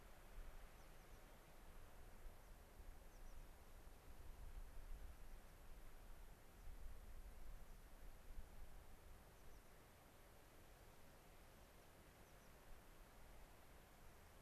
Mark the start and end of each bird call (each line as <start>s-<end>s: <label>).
0.6s-1.4s: American Pipit (Anthus rubescens)
3.1s-3.4s: American Pipit (Anthus rubescens)
9.3s-9.7s: American Pipit (Anthus rubescens)
12.2s-12.5s: American Pipit (Anthus rubescens)